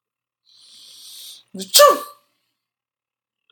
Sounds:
Sneeze